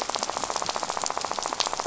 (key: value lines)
label: biophony, rattle
recorder: SoundTrap 500